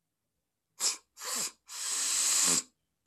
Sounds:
Sniff